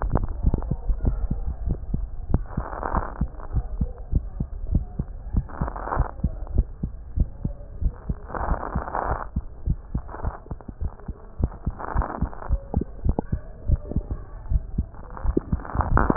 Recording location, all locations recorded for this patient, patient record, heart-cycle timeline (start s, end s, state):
mitral valve (MV)
aortic valve (AV)+pulmonary valve (PV)+tricuspid valve (TV)+mitral valve (MV)
#Age: Child
#Sex: Female
#Height: 136.0 cm
#Weight: 18.5 kg
#Pregnancy status: False
#Murmur: Absent
#Murmur locations: nan
#Most audible location: nan
#Systolic murmur timing: nan
#Systolic murmur shape: nan
#Systolic murmur grading: nan
#Systolic murmur pitch: nan
#Systolic murmur quality: nan
#Diastolic murmur timing: nan
#Diastolic murmur shape: nan
#Diastolic murmur grading: nan
#Diastolic murmur pitch: nan
#Diastolic murmur quality: nan
#Outcome: Abnormal
#Campaign: 2015 screening campaign
0.00	3.30	unannotated
3.30	3.54	diastole
3.54	3.66	S1
3.66	3.78	systole
3.78	3.90	S2
3.90	4.10	diastole
4.10	4.24	S1
4.24	4.36	systole
4.36	4.48	S2
4.48	4.70	diastole
4.70	4.86	S1
4.86	4.96	systole
4.96	5.08	S2
5.08	5.32	diastole
5.32	5.46	S1
5.46	5.62	systole
5.62	5.74	S2
5.74	5.98	diastole
5.98	6.08	S1
6.08	6.20	systole
6.20	6.32	S2
6.32	6.52	diastole
6.52	6.68	S1
6.68	6.82	systole
6.82	6.92	S2
6.92	7.14	diastole
7.14	7.30	S1
7.30	7.44	systole
7.44	7.54	S2
7.54	7.80	diastole
7.80	7.94	S1
7.94	8.08	systole
8.08	8.18	S2
8.18	8.42	diastole
8.42	8.58	S1
8.58	8.74	systole
8.74	8.84	S2
8.84	9.08	diastole
9.08	9.20	S1
9.20	9.36	systole
9.36	9.46	S2
9.46	9.68	diastole
9.68	9.78	S1
9.78	9.90	systole
9.90	10.02	S2
10.02	10.24	diastole
10.24	10.32	S1
10.32	10.46	systole
10.46	10.56	S2
10.56	10.82	diastole
10.82	10.92	S1
10.92	11.08	systole
11.08	11.14	S2
11.14	11.40	diastole
11.40	11.52	S1
11.52	11.66	systole
11.66	11.76	S2
11.76	11.96	diastole
11.96	12.06	S1
12.06	12.22	systole
12.22	12.32	S2
12.32	12.50	diastole
12.50	12.62	S1
12.62	12.74	systole
12.74	12.86	S2
12.86	13.06	diastole
13.06	13.16	S1
13.16	13.30	systole
13.30	13.42	S2
13.42	13.68	diastole
13.68	16.16	unannotated